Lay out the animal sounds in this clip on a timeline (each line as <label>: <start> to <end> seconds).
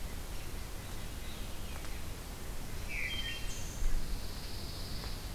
Hermit Thrush (Catharus guttatus): 0.7 to 2.0 seconds
Wood Thrush (Hylocichla mustelina): 2.7 to 4.0 seconds
Pine Warbler (Setophaga pinus): 3.9 to 5.3 seconds